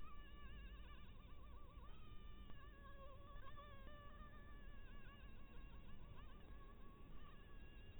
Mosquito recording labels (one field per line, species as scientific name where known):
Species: Anopheles harrisoni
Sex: female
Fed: blood-fed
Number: one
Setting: cup